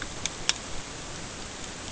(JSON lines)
{"label": "ambient", "recorder": "HydroMoth"}